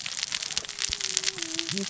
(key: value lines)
label: biophony, cascading saw
recorder: SoundTrap 600 or HydroMoth